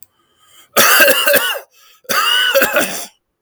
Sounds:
Cough